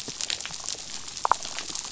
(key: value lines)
label: biophony, damselfish
recorder: SoundTrap 500